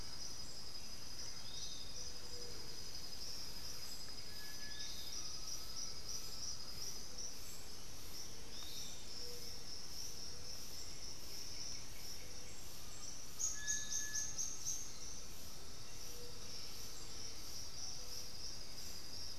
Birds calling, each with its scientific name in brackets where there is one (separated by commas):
Black-billed Thrush (Turdus ignobilis), White-winged Becard (Pachyramphus polychopterus), Undulated Tinamou (Crypturellus undulatus), Piratic Flycatcher (Legatus leucophaius), Thrush-like Wren (Campylorhynchus turdinus), Little Tinamou (Crypturellus soui), Streaked Xenops (Xenops rutilans), Great Antshrike (Taraba major)